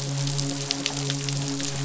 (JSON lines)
{"label": "biophony, midshipman", "recorder": "SoundTrap 500"}